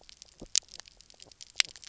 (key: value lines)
label: biophony, knock croak
recorder: SoundTrap 300